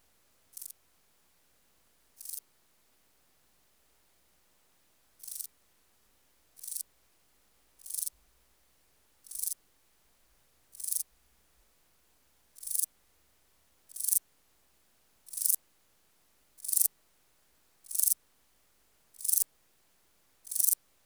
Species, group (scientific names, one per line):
Euchorthippus declivus
Orthoptera